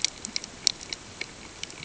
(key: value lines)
label: ambient
recorder: HydroMoth